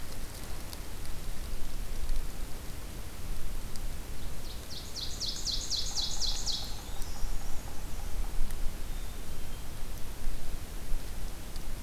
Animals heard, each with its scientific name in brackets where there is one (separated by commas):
Ovenbird (Seiurus aurocapilla), Black-capped Chickadee (Poecile atricapillus), Black-and-white Warbler (Mniotilta varia), Yellow-bellied Sapsucker (Sphyrapicus varius)